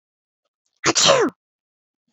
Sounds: Sneeze